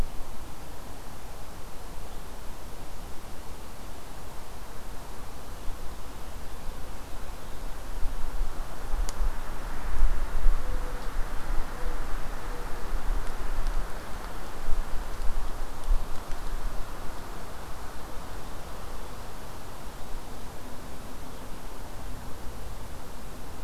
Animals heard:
forest ambience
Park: Acadia National Park